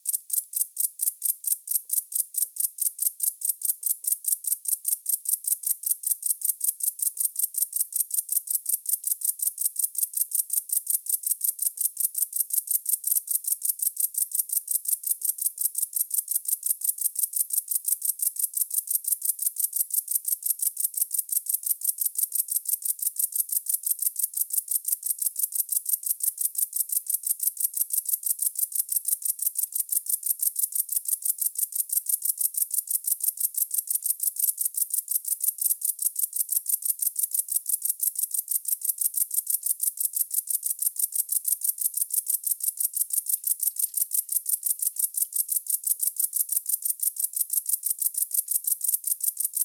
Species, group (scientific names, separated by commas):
Decticus verrucivorus, Orthoptera